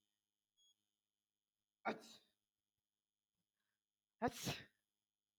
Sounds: Sneeze